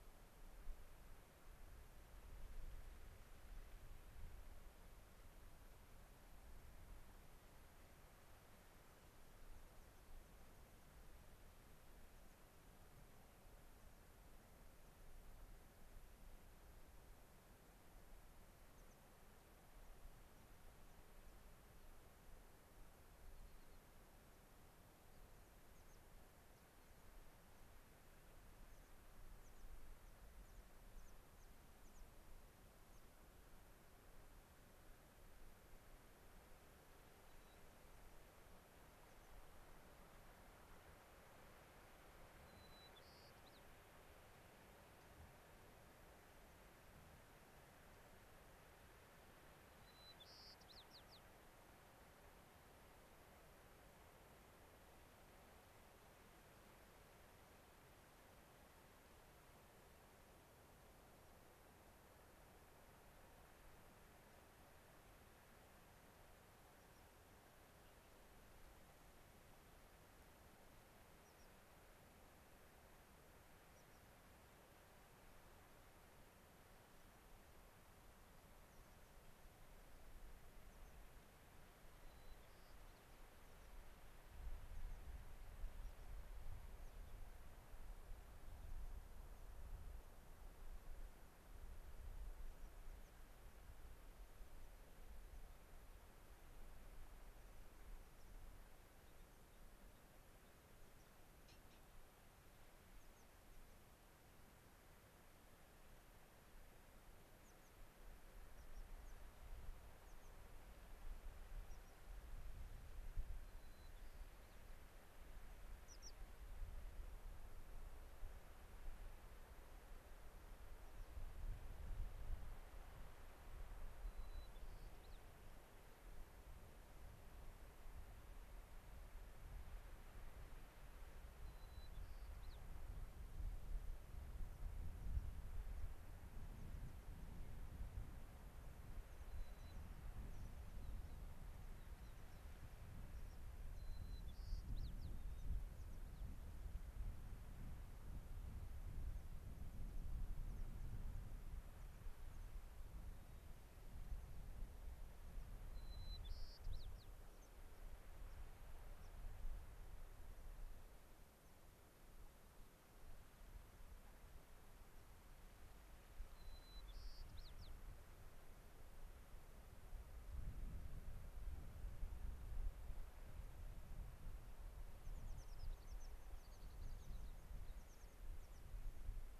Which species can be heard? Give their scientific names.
Anthus rubescens, Zonotrichia leucophrys